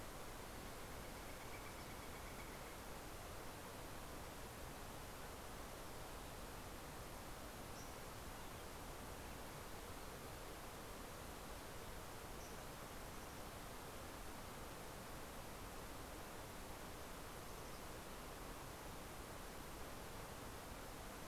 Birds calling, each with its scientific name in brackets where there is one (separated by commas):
Northern Flicker (Colaptes auratus), Fox Sparrow (Passerella iliaca)